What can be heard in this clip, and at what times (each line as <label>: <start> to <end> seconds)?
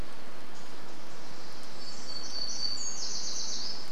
Pacific Wren song: 0 to 2 seconds
warbler song: 2 to 4 seconds